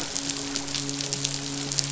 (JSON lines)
{"label": "biophony, midshipman", "recorder": "SoundTrap 500"}